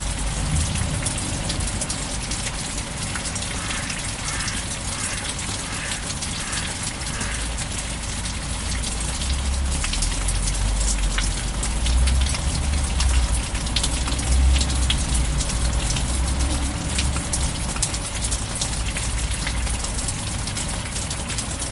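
0.0s Raindrops fall to the ground. 3.3s
3.3s Raindrops fall on the ground as crows crow in the distance. 7.6s
7.6s Raindrops fall to the ground. 21.7s

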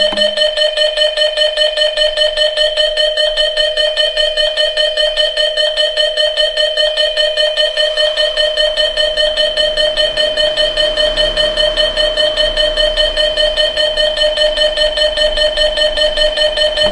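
0.0s A loud alarm sounds. 16.9s

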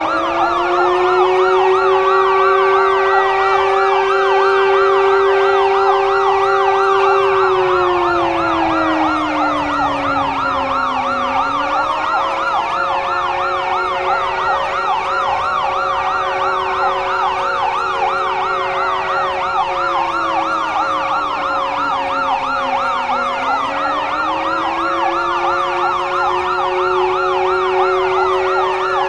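0.0s A loud catastrophe siren sounds. 29.1s
0.0s The siren of a police car is loud. 29.1s
0.0s The sirens of a fire truck sound loudly. 29.1s
0.0s The loud siren of an ambulance. 29.1s

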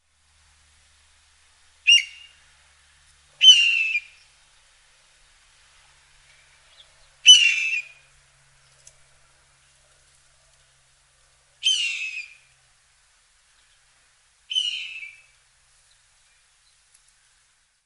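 1.8s A hawk cries outdoors. 2.3s
3.3s A hawk cries loudly outdoors. 4.2s
7.1s A hawk cries loudly outdoors. 8.0s
11.5s A hawk cries outdoors. 12.4s
14.5s A hawk is crying in the distance. 15.2s

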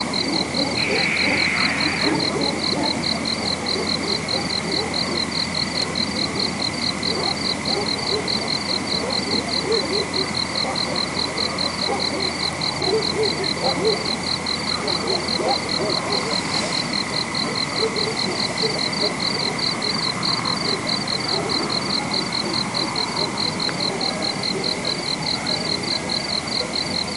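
0.0s A dog barks in the distance at night in the countryside. 27.2s
0.0s Crickets chirping at night in the countryside. 27.2s

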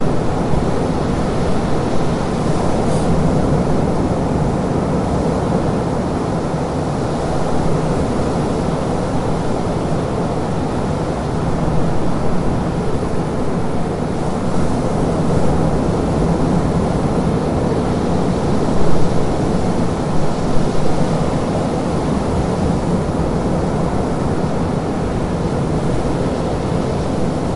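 0.0s Waves crash and wind blows at the beach. 27.6s

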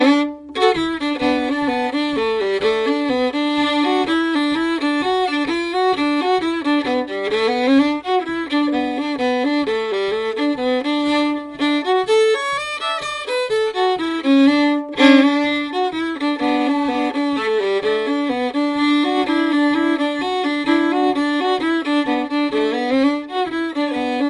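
0.0s A person plays a heartfelt, rhythmic, folk-inspired melodic solo on the violin. 24.3s

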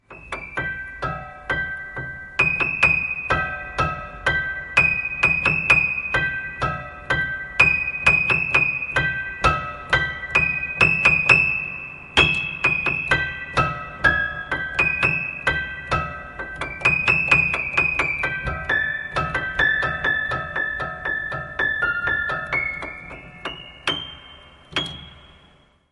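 0.3s An anxious piano melody is playing. 16.2s

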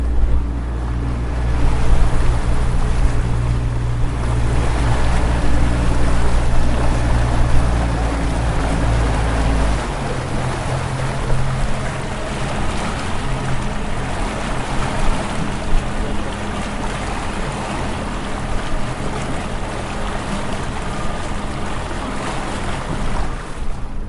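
0.0s A ship moves through the water. 24.1s
1.6s Dominant engine sounds of a ship. 9.8s
9.8s Engine sounds from a ship. 24.1s

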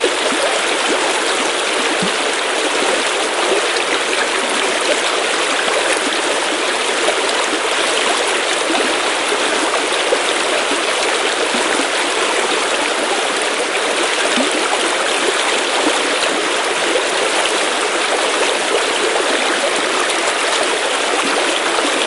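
0.0s A close water stream flows in nature. 22.1s

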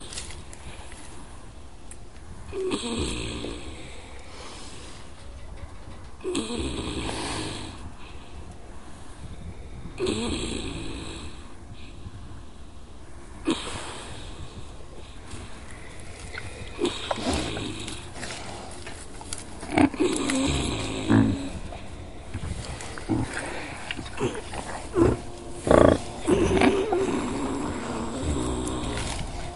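2.4s An animal is sleeping and snoring quietly in the background. 4.2s
6.1s An animal is sleeping and snoring quietly in the background. 7.8s
10.0s An animal is sleeping and snoring quietly in the background. 11.4s
13.4s An animal is sleeping and snoring quietly in the background. 15.0s
16.7s An animal is sleeping and snoring quietly in the background. 18.3s
19.7s A quiet animal grunt is heard in the background. 21.6s
22.3s An animal is sleeping and snoring quietly in the background. 25.0s
25.0s A quiet animal grunt is heard in the background. 27.0s
26.9s An animal is sleeping and snoring quietly in the background. 29.6s

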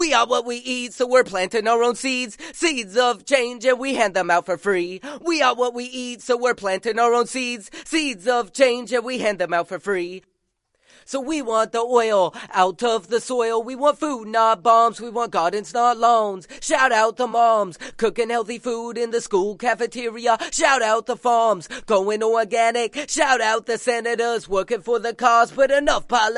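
0.0s A male singer performs a rhythmic a cappella hip-hop verse in a boastful and provocative manner. 26.4s

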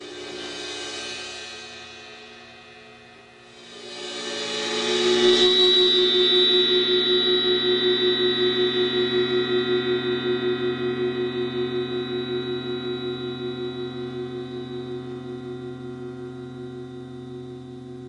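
0.0s Metallic hi-hat drums. 1.7s
4.0s The hi-hat of drums produces a clinking metallic sound. 14.6s

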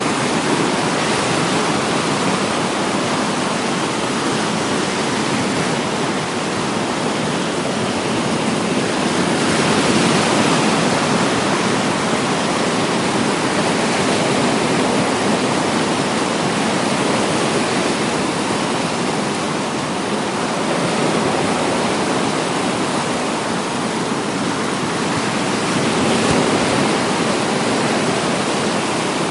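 0.0s The whooshing sound of waves. 7.9s
8.2s A big wave splashes onto the seashore. 12.3s
13.0s The ocean roars as a large wave crashes ashore. 29.3s

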